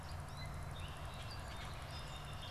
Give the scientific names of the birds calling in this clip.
Dumetella carolinensis, Agelaius phoeniceus, Melospiza melodia